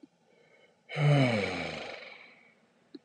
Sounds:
Sigh